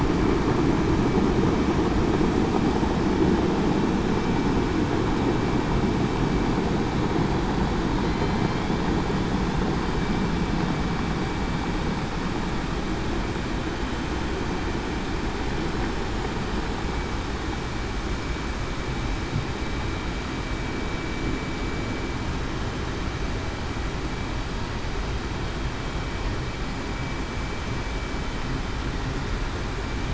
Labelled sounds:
8.0	8.4	killer whale, southern resident, 4.08 to 4.15 kHz

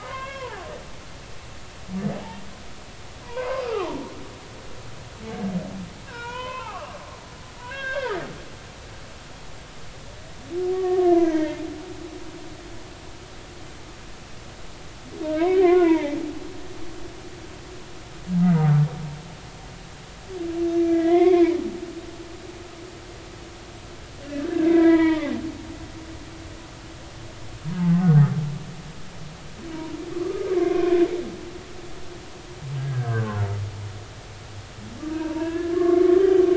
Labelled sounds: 0.0	0.6	humpback whale, 0.80 to 3.4 kHz
3.2	4.0	humpback whale, 0.86 to 1.4 kHz
6.1	7.0	humpback whale, 0.80 to 3.2 kHz
7.6	8.3	humpback whale, 1.0 to 3.9 kHz
10.7	11.6	humpback whale, 0.86 to 2.3 kHz
15.3	16.2	humpback whale, 0.80 to 2.4 kHz
18.5	18.8	humpback whale, 1.2 to 1.3 kHz
20.8	21.6	humpback whale, 0.93 to 3.6 kHz
24.3	25.3	humpback whale, 0.90 to 2.4 kHz
27.8	28.2	humpback whale, 0.80 to 1.5 kHz
30.2	31.0	humpback whale, 0.96 to 1.3 kHz
32.8	33.4	humpback whale, 0.99 to 1.8 kHz
35.2	36.5	humpback whale, 0.86 to 3.2 kHz

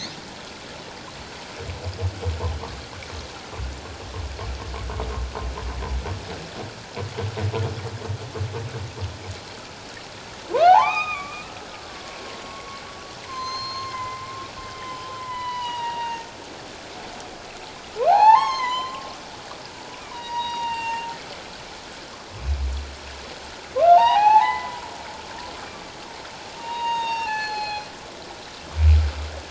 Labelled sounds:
10.5	11.6	humpback whale, 0.78 to 3.8 kHz
12.5	14.2	humpback whale, 0.94 to 6.5 kHz
14.7	16.3	humpback whale, 0.81 to 5.2 kHz
18.1	19.1	humpback whale, 0.78 to 7.2 kHz
20.1	21.1	humpback whale, 0.84 to 5.8 kHz
23.8	25.9	humpback whale, 0.78 to 4.4 kHz
26.6	27.9	humpback whale, 0.78 to 7.0 kHz

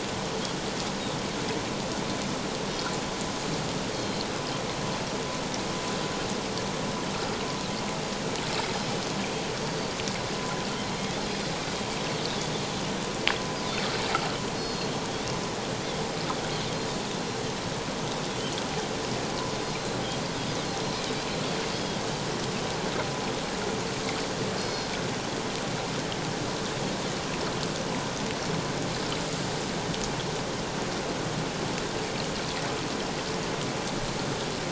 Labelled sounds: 3.9	4.3	Pacific white-sided dolphin, 3.0 to 4.5 kHz
9.6	9.9	Pacific white-sided dolphin, 4.5 to 4.8 kHz
14.6	14.9	Pacific white-sided dolphin, 4.2 to 5.2 kHz
19.6	20.0	Pacific white-sided dolphin, 4.0 to 4.3 kHz
21.7	22.0	Pacific white-sided dolphin, 3.1 to 3.4 kHz
24.6	24.9	Pacific white-sided dolphin, 4.2 to 5.2 kHz

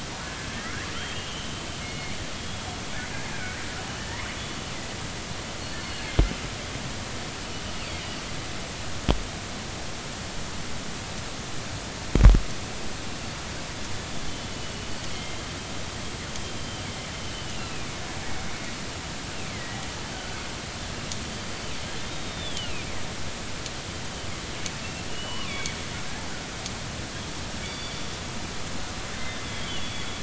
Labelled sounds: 0.5	1.5	killer whale, northern resident, R clan, call N32ii, 1.2 to 3.3 kHz
1.8	2.1	killer whale, northern resident, G clan, call N24i, 2.0 to 2.3 kHz
2.3	2.6	killer whale, northern resident, 3.2 to 3.5 kHz
3.3	3.6	killer whale, northern resident, R clan, call N33, 1.4 to 1.7 kHz
4.0	4.2	killer whale, northern resident, R clan, call N32i, 1.7 to 2.2 kHz
5.8	6.1	killer whale, northern resident, G clan, call N23ii, 4.2 to 4.5 kHz
14.3	14.7	killer whale, northern resident, G clan, call N23ii, 2.9 to 3.1 kHz
15.1	15.4	killer whale, northern resident, G clan, call N23ii, 2.0 to 3.3 kHz
17.2	17.9	killer whale, northern resident, G clan, 2.3 to 3.1 kHz
19.5	19.8	killer whale, northern resident, G clan, 1.9 to 2.4 kHz
20.1	20.4	killer whale, northern resident, G clan, 1.4 to 1.6 kHz
22.0	22.9	killer whale, northern resident, G clan, 2.3 to 3.8 kHz
25.1	25.7	killer whale, northern resident, G clan, GG subclan, call N23ii, 2.1 to 3.6 kHz
27.6	28.0	killer whale, northern resident, G clan, call N24ii, 3.3 to 4.7 kHz
29.1	30.1	killer whale, northern resident, G clan, 2.7 to 3.8 kHz

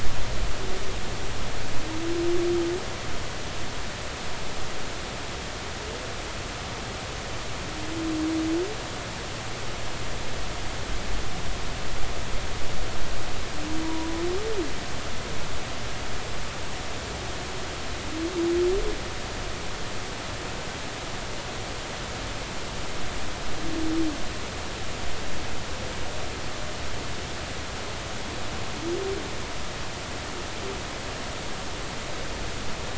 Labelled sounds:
13.8	14.2	humpback whale, 0.93 to 1.0 kHz

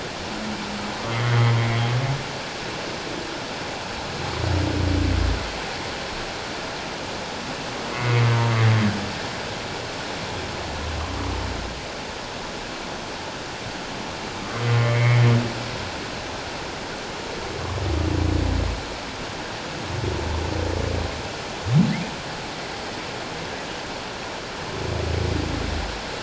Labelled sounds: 1.1	1.5	humpback whale, 1.9 to 2.2 kHz
7.9	8.3	humpback whale, 1.9 to 2.3 kHz
14.4	15.2	humpback whale, 1.0 to 2.3 kHz

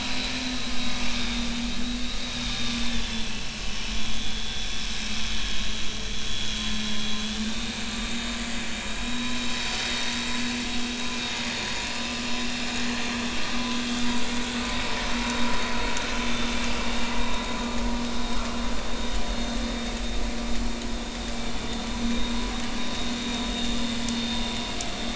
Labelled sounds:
0.5	1.5	vessel noise, 3.4 to 3.9 kHz
2.2	2.5	vessel noise, 3.7 to 3.9 kHz
3.0	3.3	vessel noise, 3.4 to 3.6 kHz
4.0	4.7	vessel noise, 3.2 to 3.5 kHz
6.3	9.4	vessel noise, 1.9 to 3.9 kHz
9.8	10.1	vessel noise, 3.68 to 3.74 kHz
12.3	12.7	vessel noise, 3.6 to 3.7 kHz
22.0	22.4	vessel noise, 3.7 to 3.8 kHz
22.8	23.8	vessel noise, 3.6 to 3.8 kHz
24.2	24.5	vessel noise, 3.6 to 3.7 kHz

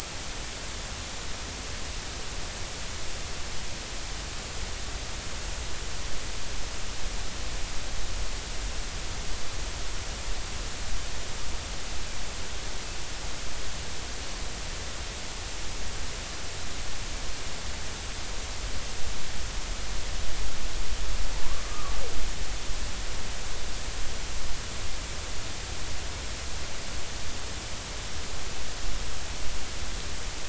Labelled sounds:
21.7	22.0	humpback whale, 1.1 to 1.3 kHz

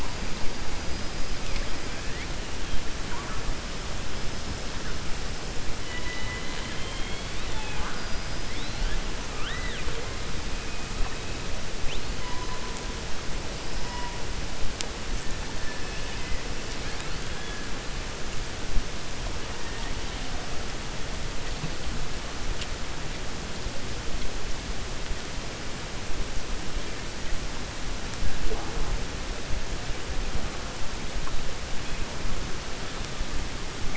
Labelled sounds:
7.9	8.4	killer whale, 4.8 to 5.1 kHz
9.3	10.0	killer whale, 1.2 to 4.0 kHz
15.6	16.4	killer whale, 1.7 to 3.5 kHz

